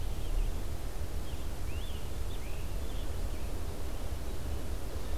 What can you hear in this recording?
Scarlet Tanager